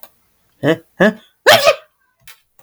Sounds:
Sneeze